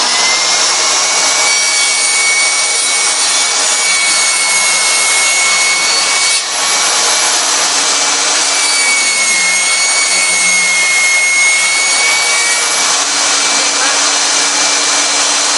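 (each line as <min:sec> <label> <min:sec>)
0:00.0 A saw is cutting continuously. 0:15.6
0:00.0 A vacuum cleaner is running. 0:15.6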